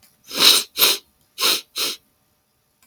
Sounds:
Sniff